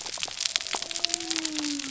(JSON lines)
{"label": "biophony", "recorder": "SoundTrap 300"}